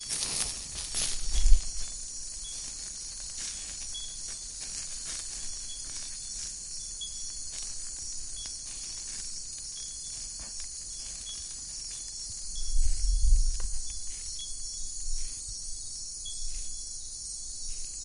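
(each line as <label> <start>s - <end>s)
Static noise and the sound of a microphone rubbing against fabric. 0.0s - 1.7s
Outdoor ambient noise with intermittent small chirps. 0.0s - 18.0s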